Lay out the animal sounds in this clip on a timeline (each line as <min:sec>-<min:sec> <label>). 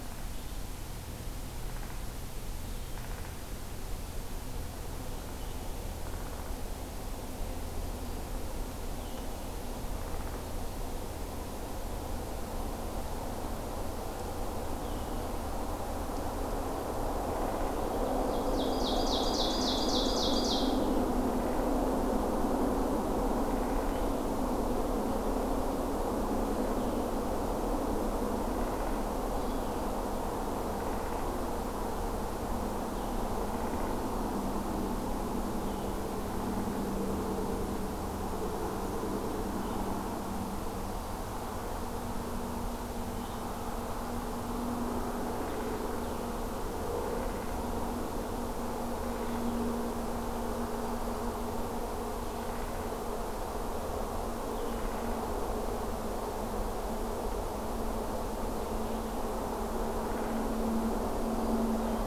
0:01.6-0:01.9 Downy Woodpecker (Dryobates pubescens)
0:02.9-0:03.3 Downy Woodpecker (Dryobates pubescens)
0:05.2-0:15.3 Blue-headed Vireo (Vireo solitarius)
0:05.9-0:06.5 Downy Woodpecker (Dryobates pubescens)
0:10.1-0:10.4 Downy Woodpecker (Dryobates pubescens)
0:18.3-0:20.9 Ovenbird (Seiurus aurocapilla)
0:23.4-0:24.2 Downy Woodpecker (Dryobates pubescens)
0:26.7-1:02.1 Blue-headed Vireo (Vireo solitarius)
0:28.5-0:29.1 Downy Woodpecker (Dryobates pubescens)
0:30.7-0:31.2 Downy Woodpecker (Dryobates pubescens)